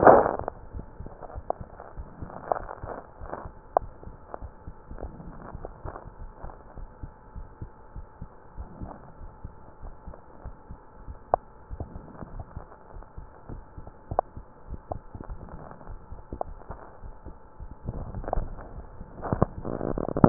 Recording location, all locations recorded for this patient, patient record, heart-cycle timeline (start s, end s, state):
pulmonary valve (PV)
aortic valve (AV)+pulmonary valve (PV)+tricuspid valve (TV)+mitral valve (MV)
#Age: nan
#Sex: Female
#Height: nan
#Weight: nan
#Pregnancy status: True
#Murmur: Absent
#Murmur locations: nan
#Most audible location: nan
#Systolic murmur timing: nan
#Systolic murmur shape: nan
#Systolic murmur grading: nan
#Systolic murmur pitch: nan
#Systolic murmur quality: nan
#Diastolic murmur timing: nan
#Diastolic murmur shape: nan
#Diastolic murmur grading: nan
#Diastolic murmur pitch: nan
#Diastolic murmur quality: nan
#Outcome: Abnormal
#Campaign: 2015 screening campaign
0.00	4.98	unannotated
4.98	5.12	S1
5.12	5.24	systole
5.24	5.36	S2
5.36	5.62	diastole
5.62	5.74	S1
5.74	5.84	systole
5.84	5.96	S2
5.96	6.20	diastole
6.20	6.32	S1
6.32	6.42	systole
6.42	6.54	S2
6.54	6.78	diastole
6.78	6.90	S1
6.90	7.02	systole
7.02	7.12	S2
7.12	7.36	diastole
7.36	7.48	S1
7.48	7.60	systole
7.60	7.70	S2
7.70	7.94	diastole
7.94	8.06	S1
8.06	8.20	systole
8.20	8.28	S2
8.28	8.58	diastole
8.58	8.70	S1
8.70	8.80	systole
8.80	8.92	S2
8.92	9.20	diastole
9.20	9.30	S1
9.30	9.40	systole
9.40	9.54	S2
9.54	9.84	diastole
9.84	9.94	S1
9.94	10.06	systole
10.06	10.18	S2
10.18	10.46	diastole
10.46	10.56	S1
10.56	10.68	systole
10.68	10.78	S2
10.78	11.06	diastole
11.06	11.18	S1
11.18	11.32	systole
11.32	11.42	S2
11.42	11.72	diastole
11.72	11.88	S1
11.88	11.96	systole
11.96	12.06	S2
12.06	12.32	diastole
12.32	12.46	S1
12.46	12.54	systole
12.54	12.66	S2
12.66	12.94	diastole
12.94	13.04	S1
13.04	13.18	systole
13.18	13.28	S2
13.28	13.50	diastole
13.50	13.64	S1
13.64	13.76	systole
13.76	13.86	S2
13.86	14.10	diastole
14.10	14.24	S1
14.24	14.36	systole
14.36	14.46	S2
14.46	14.68	diastole
14.68	14.82	S1
14.82	14.92	systole
14.92	15.02	S2
15.02	15.28	diastole
15.28	15.42	S1
15.42	15.52	systole
15.52	15.62	S2
15.62	15.88	diastole
15.88	16.00	S1
16.00	16.12	systole
16.12	16.22	S2
16.22	16.48	diastole
16.48	16.58	S1
16.58	16.68	systole
16.68	16.80	S2
16.80	17.04	diastole
17.04	17.16	S1
17.16	17.26	systole
17.26	17.36	S2
17.36	17.60	diastole
17.60	17.72	S1
17.72	17.84	systole
17.84	17.96	S2
17.96	18.16	diastole
18.16	18.26	S1
18.26	20.29	unannotated